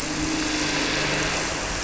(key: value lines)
label: anthrophony, boat engine
recorder: SoundTrap 300